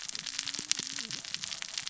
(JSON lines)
{"label": "biophony, cascading saw", "recorder": "SoundTrap 600 or HydroMoth"}